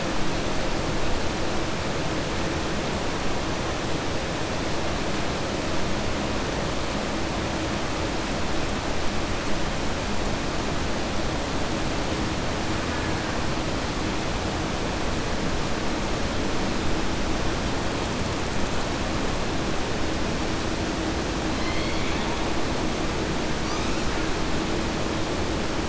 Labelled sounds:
21.5	22.3	killer whale, southern resident, 1.8 to 5.1 kHz

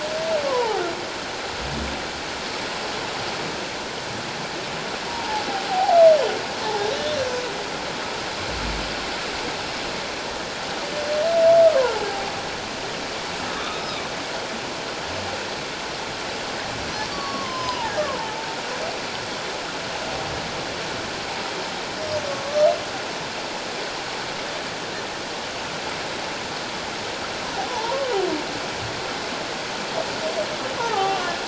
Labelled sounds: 0.5	0.8	humpback whale, 0.78 to 1.1 kHz
5.1	6.0	humpback whale, 0.78 to 1.0 kHz
12.1	12.3	humpback whale, 0.78 to 0.91 kHz
13.5	13.8	humpback whale, 1.1 to 1.4 kHz
17.1	18.5	humpback whale, 0.78 to 5.2 kHz
27.7	28.1	humpback whale, 0.81 to 1.2 kHz
30.8	31.4	humpback whale, 0.78 to 1.5 kHz

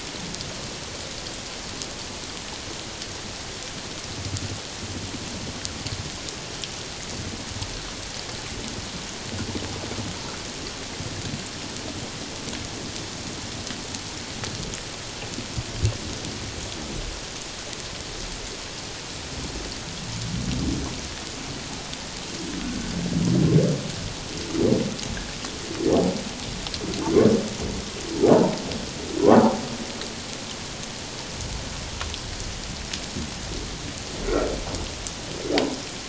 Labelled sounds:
34.2	34.5	humpback whale, 1.2 to 1.5 kHz

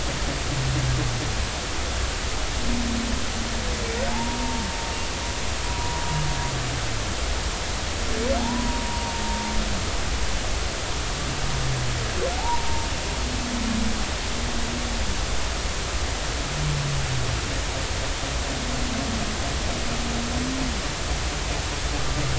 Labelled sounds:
4.1	4.7	humpback whale, 0.80 to 0.99 kHz
8.4	9.2	humpback whale, 0.80 to 1.1 kHz
12.4	12.9	humpback whale, 0.80 to 1.0 kHz

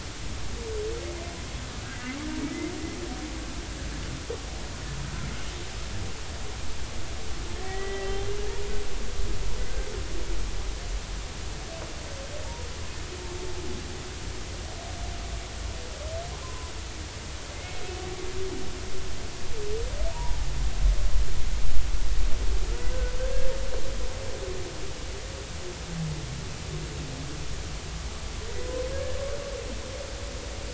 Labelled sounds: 1.9	2.2	humpback whale, 1.9 to 2.1 kHz
7.6	8.2	humpback whale, 1.8 to 3.2 kHz
16.4	16.7	humpback whale, 0.96 to 1.1 kHz
17.5	17.8	humpback whale, 2.0 to 2.2 kHz
20.1	20.4	humpback whale, 0.80 to 1.0 kHz
28.9	29.2	humpback whale, 1.6 to 1.8 kHz

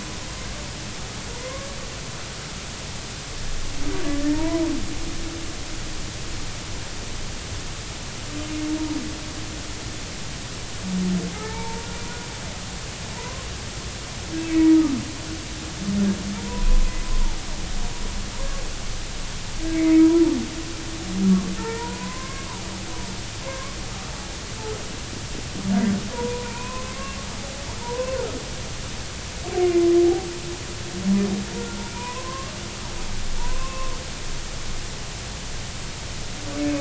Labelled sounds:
1.4	1.7	humpback whale, 0.96 to 1.2 kHz
4.0	4.6	humpback whale, 0.86 to 1.9 kHz
11.3	11.9	humpback whale, 0.80 to 2.4 kHz
13.2	13.5	humpback whale, 0.86 to 1.1 kHz
14.4	14.6	humpback whale, 2.5 to 2.7 kHz
16.4	17.0	humpback whale, 0.90 to 1.1 kHz
18.4	18.6	humpback whale, 0.93 to 1.2 kHz
21.6	22.6	humpback whale, 0.83 to 1.9 kHz
23.4	23.8	humpback whale, 0.99 to 1.2 kHz
26.1	26.9	humpback whale, 0.90 to 2.6 kHz
27.8	28.2	humpback whale, 0.86 to 1.1 kHz
29.6	29.9	humpback whale, 2.0 to 2.3 kHz
31.6	32.5	humpback whale, 0.90 to 2.5 kHz
33.4	33.9	humpback whale, 0.86 to 2.7 kHz

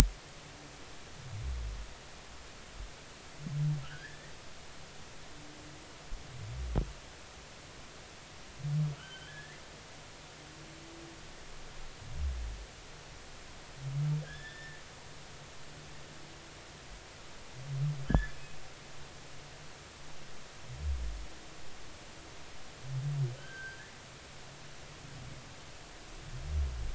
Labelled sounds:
3.8	4.3	humpback whale, 1.2 to 2.0 kHz
9.0	9.6	humpback whale, 1.3 to 3.2 kHz
14.2	14.8	humpback whale, 1.5 to 3.6 kHz
18.1	18.6	humpback whale, 1.5 to 2.6 kHz
23.4	23.9	humpback whale, 1.4 to 1.8 kHz

